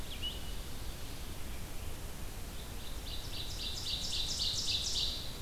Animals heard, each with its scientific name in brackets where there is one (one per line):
Red-eyed Vireo (Vireo olivaceus)
Ovenbird (Seiurus aurocapilla)